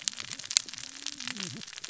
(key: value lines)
label: biophony, cascading saw
recorder: SoundTrap 600 or HydroMoth